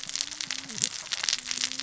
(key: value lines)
label: biophony, cascading saw
recorder: SoundTrap 600 or HydroMoth